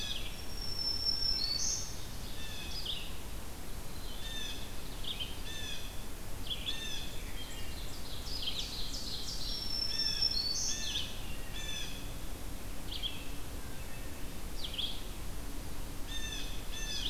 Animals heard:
Black-throated Green Warbler (Setophaga virens)
Ovenbird (Seiurus aurocapilla)
Blue Jay (Cyanocitta cristata)
Wood Thrush (Hylocichla mustelina)
Red-eyed Vireo (Vireo olivaceus)

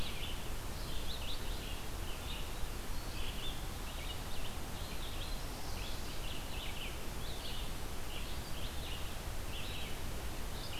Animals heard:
Red-eyed Vireo (Vireo olivaceus)

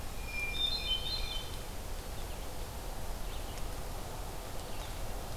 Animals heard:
Hermit Thrush (Catharus guttatus)
Red-eyed Vireo (Vireo olivaceus)
Black-throated Green Warbler (Setophaga virens)

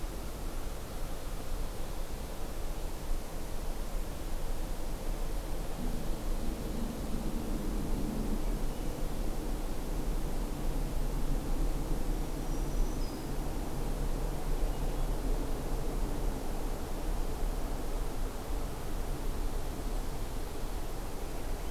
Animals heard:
Black-throated Green Warbler (Setophaga virens)

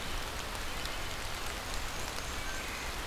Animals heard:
Wood Thrush (Hylocichla mustelina)
Black-and-white Warbler (Mniotilta varia)

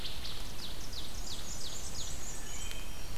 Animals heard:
Wood Thrush (Hylocichla mustelina)
Black-and-white Warbler (Mniotilta varia)
Ovenbird (Seiurus aurocapilla)

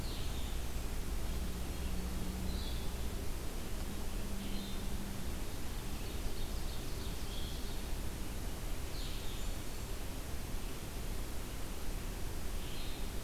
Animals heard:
Blue-headed Vireo (Vireo solitarius)
Blackburnian Warbler (Setophaga fusca)
Ovenbird (Seiurus aurocapilla)

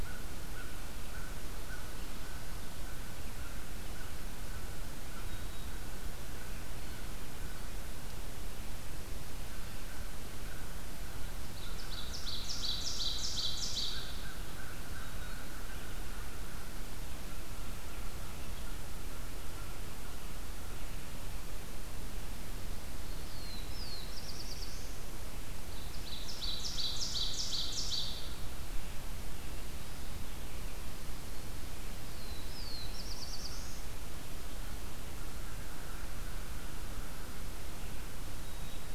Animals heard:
Black-throated Green Warbler (Setophaga virens)
Black-throated Blue Warbler (Setophaga caerulescens)
American Crow (Corvus brachyrhynchos)
Ovenbird (Seiurus aurocapilla)

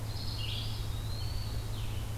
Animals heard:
Red-eyed Vireo (Vireo olivaceus)
Eastern Wood-Pewee (Contopus virens)

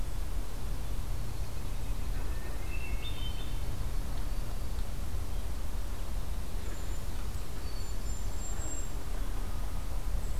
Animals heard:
Hermit Thrush (Catharus guttatus)
Golden-crowned Kinglet (Regulus satrapa)

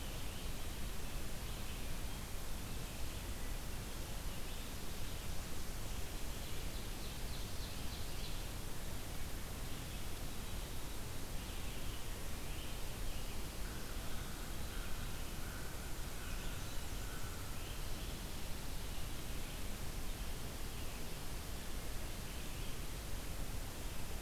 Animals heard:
Red-eyed Vireo (Vireo olivaceus)
American Crow (Corvus brachyrhynchos)
Ovenbird (Seiurus aurocapilla)

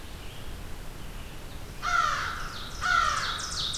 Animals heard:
Red-eyed Vireo (Vireo olivaceus)
American Crow (Corvus brachyrhynchos)
Ovenbird (Seiurus aurocapilla)

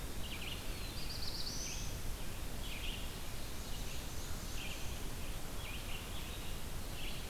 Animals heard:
Eastern Wood-Pewee (Contopus virens)
Ovenbird (Seiurus aurocapilla)
Black-throated Blue Warbler (Setophaga caerulescens)
Red-eyed Vireo (Vireo olivaceus)
Black-and-white Warbler (Mniotilta varia)

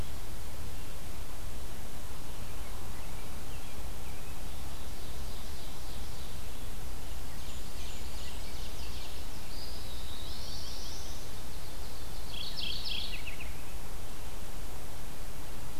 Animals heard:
American Robin (Turdus migratorius)
Black-throated Blue Warbler (Setophaga caerulescens)
Mourning Warbler (Geothlypis philadelphia)
Ovenbird (Seiurus aurocapilla)
unidentified call
Blackburnian Warbler (Setophaga fusca)
Eastern Wood-Pewee (Contopus virens)

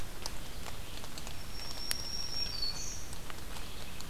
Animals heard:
Black-throated Green Warbler (Setophaga virens)
Red-eyed Vireo (Vireo olivaceus)

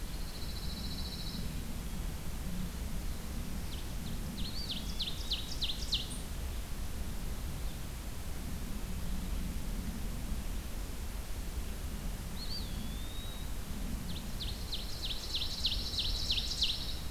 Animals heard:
Pine Warbler (Setophaga pinus)
Ovenbird (Seiurus aurocapilla)
Eastern Wood-Pewee (Contopus virens)

